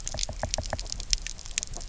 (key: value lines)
label: biophony, knock
recorder: SoundTrap 300